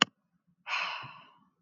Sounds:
Sigh